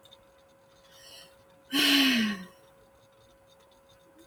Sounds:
Sigh